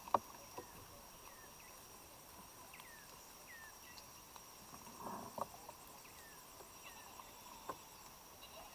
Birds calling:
African Emerald Cuckoo (Chrysococcyx cupreus)

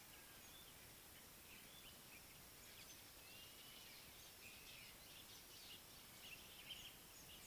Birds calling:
Violet-backed Starling (Cinnyricinclus leucogaster)

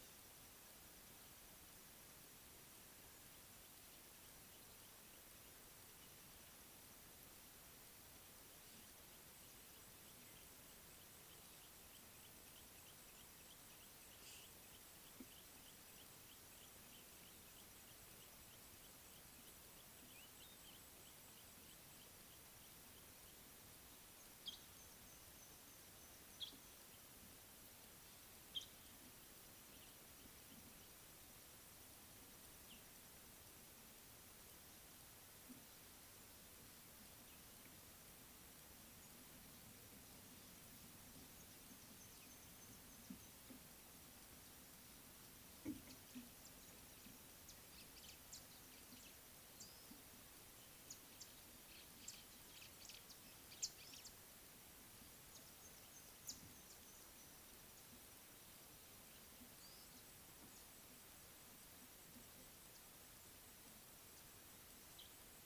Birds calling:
Red-backed Scrub-Robin (Cercotrichas leucophrys)

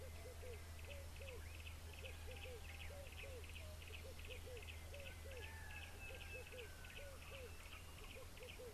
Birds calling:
Sulphur-breasted Bushshrike (Telophorus sulfureopectus), Yellow-breasted Apalis (Apalis flavida)

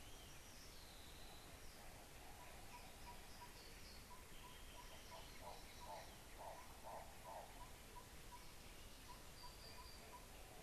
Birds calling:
Hartlaub's Turaco (Tauraco hartlaubi), Yellow-rumped Tinkerbird (Pogoniulus bilineatus)

